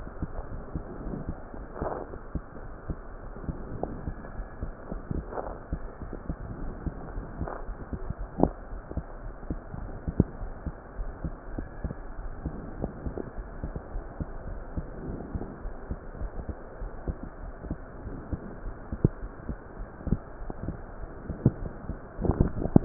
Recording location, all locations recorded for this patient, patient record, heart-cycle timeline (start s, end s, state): aortic valve (AV)
aortic valve (AV)+pulmonary valve (PV)+tricuspid valve (TV)+mitral valve (MV)
#Age: Child
#Sex: Female
#Height: 136.0 cm
#Weight: 33.9 kg
#Pregnancy status: False
#Murmur: Absent
#Murmur locations: nan
#Most audible location: nan
#Systolic murmur timing: nan
#Systolic murmur shape: nan
#Systolic murmur grading: nan
#Systolic murmur pitch: nan
#Systolic murmur quality: nan
#Diastolic murmur timing: nan
#Diastolic murmur shape: nan
#Diastolic murmur grading: nan
#Diastolic murmur pitch: nan
#Diastolic murmur quality: nan
#Outcome: Normal
#Campaign: 2015 screening campaign
0.00	0.12	S2
0.12	0.34	diastole
0.34	0.48	S1
0.48	0.72	systole
0.72	0.86	S2
0.86	1.02	diastole
1.02	1.16	S1
1.16	1.26	systole
1.26	1.38	S2
1.38	1.58	diastole
1.58	1.66	S1
1.66	1.78	systole
1.78	1.92	S2
1.92	2.08	diastole
2.08	2.16	S1
2.16	2.30	systole
2.30	2.42	S2
2.42	2.64	diastole
2.64	2.72	S1
2.72	2.88	systole
2.88	2.98	S2
2.98	3.18	diastole
3.18	3.26	S1
3.26	3.42	systole
3.42	3.56	S2
3.56	3.74	diastole
3.74	3.90	S1
3.90	4.04	systole
4.04	4.18	S2
4.18	4.36	diastole
4.36	4.48	S1
4.48	4.62	systole
4.62	4.74	S2
4.74	4.92	diastole
4.92	5.02	S1
5.02	5.16	systole
5.16	5.26	S2
5.26	5.44	diastole
5.44	5.54	S1
5.54	5.68	systole
5.68	5.84	S2
5.84	6.02	diastole
6.02	6.14	S1
6.14	6.26	systole
6.26	6.38	S2
6.38	6.55	diastole
6.55	6.75	S1
6.75	6.84	systole
6.84	6.94	S2
6.94	7.13	diastole
7.13	7.28	S1
7.28	7.41	systole
7.41	7.52	S2
7.52	7.63	diastole
7.63	7.78	S1
7.78	7.89	systole
7.89	7.99	S2
7.99	8.15	diastole
8.15	8.29	S1
8.29	8.38	systole
8.38	8.52	S2
8.52	8.67	diastole
8.67	8.82	S1
8.82	8.96	systole
8.96	9.04	S2
9.04	9.24	diastole
9.24	9.34	S1
9.34	9.48	systole
9.48	9.60	S2
9.60	9.82	diastole
9.82	9.96	S1
9.96	10.05	systole
10.05	10.14	S2
10.14	10.36	diastole
10.36	10.52	S1
10.52	10.66	systole
10.66	10.74	S2
10.74	10.98	diastole
10.98	11.14	S1
11.14	11.24	systole
11.24	11.34	S2
11.34	11.52	diastole
11.52	11.68	S1
11.68	11.80	systole
11.80	11.96	S2
11.96	12.18	diastole
12.18	12.34	S1
12.34	12.44	systole
12.44	12.58	S2
12.58	12.78	diastole
12.78	12.94	S1
12.94	13.04	systole
13.04	13.18	S2
13.18	13.38	diastole
13.38	13.50	S1
13.50	13.62	systole
13.62	13.74	S2
13.74	13.94	diastole
13.94	14.04	S1
14.04	14.20	systole
14.20	14.30	S2
14.30	14.48	diastole
14.48	14.62	S1
14.62	14.76	systole
14.76	14.88	S2
14.88	15.06	diastole
15.06	15.20	S1
15.20	15.34	systole
15.34	15.46	S2
15.46	15.64	diastole
15.64	15.72	S1
15.72	15.88	systole
15.88	16.00	S2
16.00	16.20	diastole
16.20	16.32	S1
16.32	16.46	systole
16.46	16.56	S2
16.56	16.80	diastole
16.80	16.92	S1
16.92	17.06	systole
17.06	17.22	S2
17.22	17.42	diastole
17.42	17.54	S1
17.54	17.66	systole
17.66	17.80	S2
17.80	18.02	diastole
18.02	18.14	S1
18.14	18.30	systole
18.30	18.46	S2
18.46	18.62	diastole
18.62	18.74	S1
18.74	18.88	systole